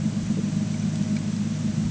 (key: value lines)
label: anthrophony, boat engine
recorder: HydroMoth